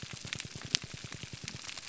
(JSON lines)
{"label": "biophony, grouper groan", "recorder": "SoundTrap 300"}